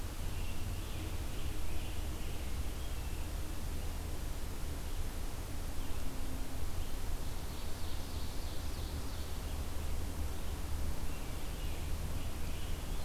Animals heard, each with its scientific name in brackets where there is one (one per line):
Scarlet Tanager (Piranga olivacea)
Ovenbird (Seiurus aurocapilla)